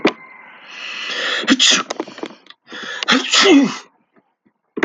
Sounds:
Sneeze